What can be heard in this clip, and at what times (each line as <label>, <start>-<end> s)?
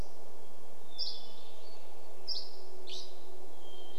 Dusky Flycatcher song, 0-4 s
Hermit Thrush song, 0-4 s
airplane, 0-4 s